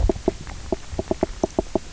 {"label": "biophony, knock croak", "recorder": "SoundTrap 300"}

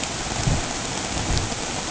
{"label": "ambient", "recorder": "HydroMoth"}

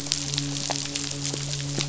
{"label": "biophony, midshipman", "recorder": "SoundTrap 500"}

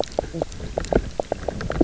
{"label": "biophony, knock croak", "recorder": "SoundTrap 300"}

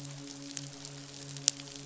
{"label": "biophony, midshipman", "recorder": "SoundTrap 500"}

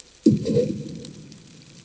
{"label": "anthrophony, bomb", "recorder": "HydroMoth"}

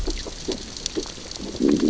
{"label": "biophony, growl", "recorder": "SoundTrap 600 or HydroMoth"}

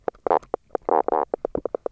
{"label": "biophony, knock croak", "recorder": "SoundTrap 300"}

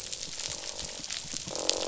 {"label": "biophony, croak", "recorder": "SoundTrap 500"}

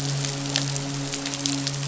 {"label": "biophony, midshipman", "recorder": "SoundTrap 500"}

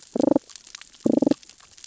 {"label": "biophony, damselfish", "recorder": "SoundTrap 600 or HydroMoth"}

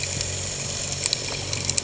{"label": "anthrophony, boat engine", "recorder": "HydroMoth"}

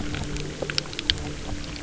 {"label": "anthrophony, boat engine", "recorder": "SoundTrap 300"}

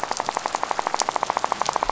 {"label": "biophony, rattle", "recorder": "SoundTrap 500"}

